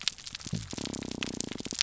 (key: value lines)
label: biophony
recorder: SoundTrap 300